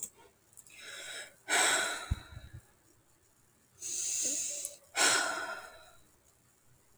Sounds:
Sigh